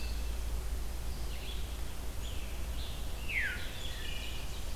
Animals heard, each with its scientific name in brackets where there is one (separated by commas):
Ovenbird (Seiurus aurocapilla), Veery (Catharus fuscescens), Red-eyed Vireo (Vireo olivaceus), Scarlet Tanager (Piranga olivacea), Wood Thrush (Hylocichla mustelina), Pine Warbler (Setophaga pinus)